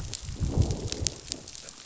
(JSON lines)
{"label": "biophony, growl", "recorder": "SoundTrap 500"}